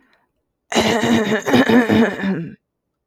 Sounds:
Throat clearing